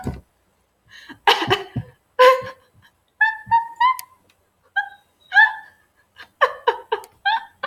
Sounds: Laughter